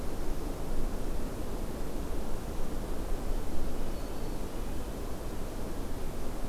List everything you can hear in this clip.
Red-breasted Nuthatch, Black-throated Green Warbler